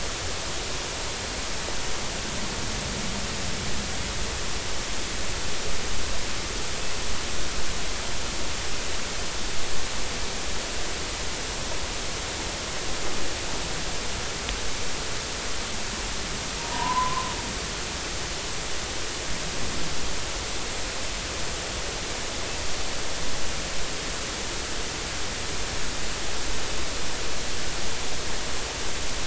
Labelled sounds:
16.6	17.3	humpback whale, 0.90 to 1.1 kHz

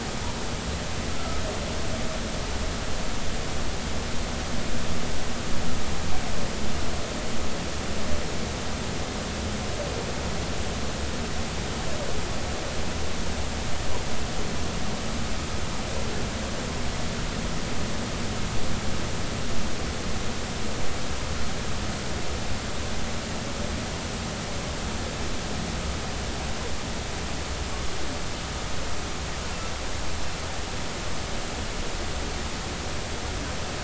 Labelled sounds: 1.2	1.4	humpback whale, 1.2 to 1.4 kHz

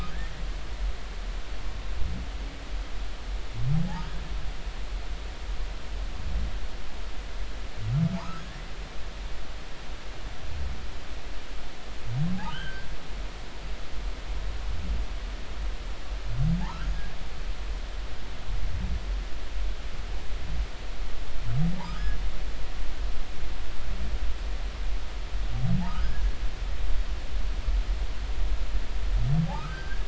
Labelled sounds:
8.1	8.6	humpback whale, 0.80 to 1.9 kHz
12.5	12.9	humpback whale, 1.4 to 3.3 kHz
22.8	23.2	humpback whale, 1.2 to 1.8 kHz
25.9	26.3	humpback whale, 1.1 to 1.7 kHz
29.5	30.0	humpback whale, 1.1 to 1.7 kHz

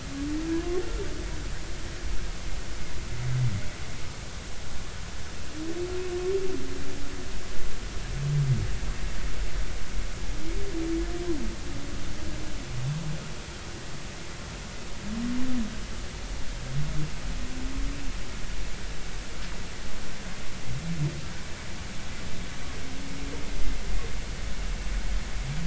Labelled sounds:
0.5	0.8	humpback whale, 0.96 to 1.1 kHz

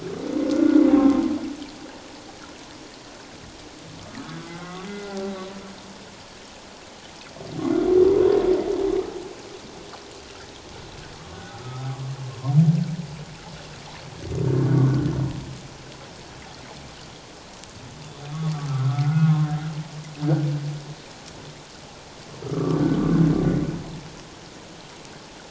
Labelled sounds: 0.5	1.2	humpback whale, 1.0 to 1.5 kHz
4.0	4.3	humpback whale, 1.1 to 1.3 kHz
4.5	5.4	humpback whale, 0.78 to 2.1 kHz
11.5	11.9	humpback whale, 1.1 to 1.5 kHz
14.7	15.0	humpback whale, 1.0 to 1.2 kHz
18.7	19.5	humpback whale, 1.0 to 1.5 kHz
20.2	20.5	humpback whale, 1.4 to 1.6 kHz
22.4	22.8	humpback whale, 1.1 to 1.4 kHz

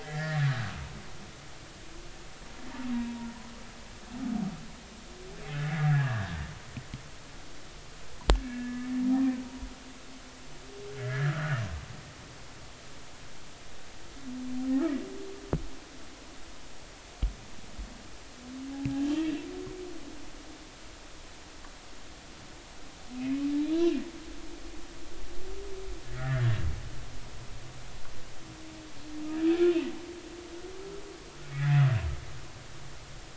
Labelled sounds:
0.0	0.6	humpback whale, 1.6 to 2.2 kHz
5.5	6.3	humpback whale, 1.5 to 2.0 kHz
8.5	8.9	humpback whale, 1.6 to 1.8 kHz
11.0	11.6	humpback whale, 1.2 to 2.1 kHz
19.0	19.3	humpback whale, 3.0 to 3.3 kHz
23.2	23.5	humpback whale, 2.4 to 2.6 kHz
26.0	26.6	humpback whale, 1.6 to 2.3 kHz
31.5	31.8	humpback whale, 1.8 to 2.0 kHz

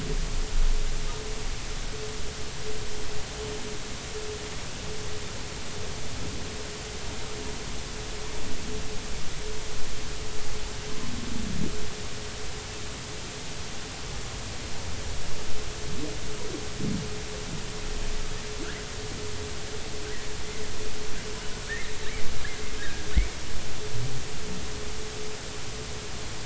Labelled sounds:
21.7	23.1	humpback whale, 1.6 to 2.2 kHz

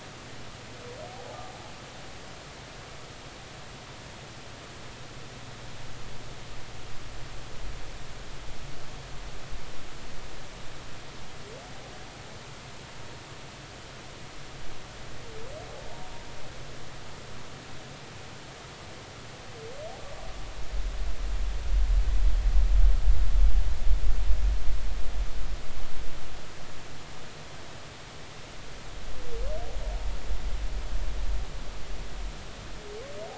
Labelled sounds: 1.1	1.4	humpback whale, 0.80 to 0.90 kHz

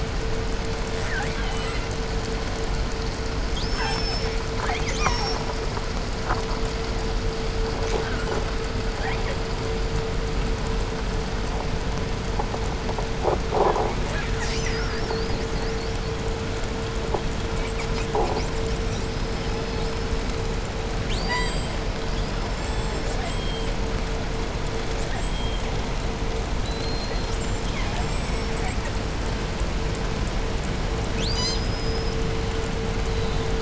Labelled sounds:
0.9	2.0	killer whale, southern resident, 0.48 to 8.0 kHz
3.5	5.6	killer whale, southern resident, call S36, 0.47 to 8.0 kHz
7.9	8.5	killer whale, 0.49 to 8.0 kHz
8.8	9.5	killer whale, 0.53 to 4.3 kHz
13.6	16.2	killer whale, southern resident, 0.47 to 8.0 kHz
17.3	20.3	killer whale, 0.71 to 8.0 kHz
20.9	23.8	killer whale, southern resident, call S36, 0.52 to 8.0 kHz
24.9	25.7	killer whale, southern resident, call S36, 0.54 to 8.0 kHz
26.5	29.0	killer whale, 0.56 to 8.0 kHz
31.1	32.3	killer whale, southern resident, call S36, 0.59 to 8.0 kHz

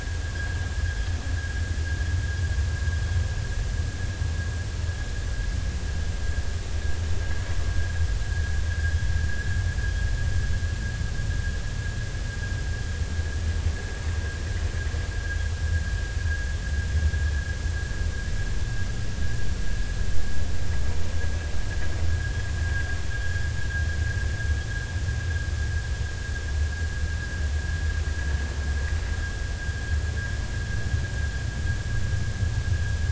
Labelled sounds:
22.1	22.9	vessel noise, 1.5 to 1.8 kHz

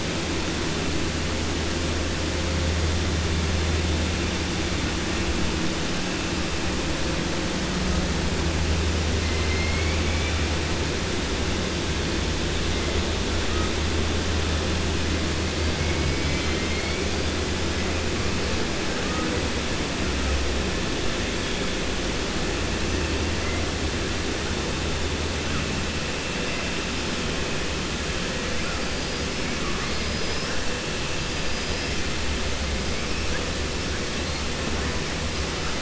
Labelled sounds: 9.3	10.4	killer whale, 2.0 to 3.1 kHz
29.8	30.6	killer whale, 4.3 to 5.7 kHz
31.4	32.0	killer whale, 4.7 to 5.8 kHz

